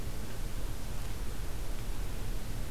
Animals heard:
forest ambience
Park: Acadia National Park